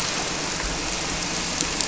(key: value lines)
label: anthrophony, boat engine
recorder: SoundTrap 300